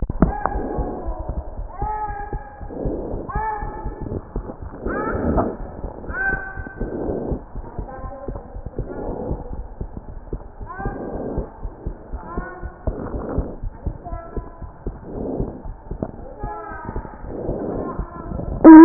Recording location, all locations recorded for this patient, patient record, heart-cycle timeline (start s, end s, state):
pulmonary valve (PV)
aortic valve (AV)+pulmonary valve (PV)+tricuspid valve (TV)+mitral valve (MV)
#Age: Child
#Sex: Female
#Height: 106.0 cm
#Weight: 20.5 kg
#Pregnancy status: False
#Murmur: Absent
#Murmur locations: nan
#Most audible location: nan
#Systolic murmur timing: nan
#Systolic murmur shape: nan
#Systolic murmur grading: nan
#Systolic murmur pitch: nan
#Systolic murmur quality: nan
#Diastolic murmur timing: nan
#Diastolic murmur shape: nan
#Diastolic murmur grading: nan
#Diastolic murmur pitch: nan
#Diastolic murmur quality: nan
#Outcome: Normal
#Campaign: 2015 screening campaign
0.00	11.62	unannotated
11.62	11.73	S1
11.73	11.83	systole
11.83	11.93	S2
11.93	12.10	diastole
12.10	12.20	S1
12.20	12.34	systole
12.34	12.44	S2
12.44	12.61	diastole
12.61	12.71	S1
12.71	12.84	systole
12.84	12.94	S2
12.94	13.11	diastole
13.11	13.21	S1
13.21	13.35	systole
13.35	13.43	S2
13.43	13.61	diastole
13.61	13.70	S1
13.70	13.85	systole
13.85	13.92	S2
13.92	14.10	diastole
14.10	14.20	S1
14.20	14.34	systole
14.34	14.42	S2
14.42	14.59	diastole
14.59	14.70	S1
14.70	14.84	systole
14.84	14.93	S2
14.93	15.13	diastole
15.13	15.25	S1
15.25	15.38	systole
15.38	15.44	S2
15.44	15.63	diastole
15.63	15.74	S1
15.74	15.87	systole
15.87	15.98	S2
15.98	16.42	diastole
16.42	18.85	unannotated